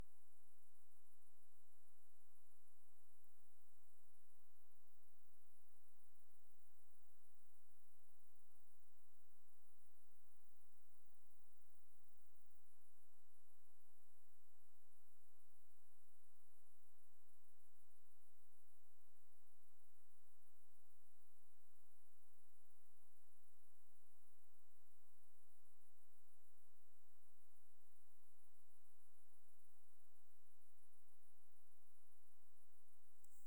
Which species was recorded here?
Roeseliana roeselii